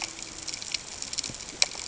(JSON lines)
{"label": "ambient", "recorder": "HydroMoth"}